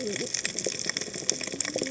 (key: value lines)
label: biophony, cascading saw
recorder: HydroMoth